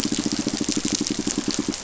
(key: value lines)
label: biophony, pulse
recorder: SoundTrap 500